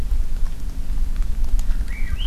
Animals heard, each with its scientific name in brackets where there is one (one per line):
Swainson's Thrush (Catharus ustulatus)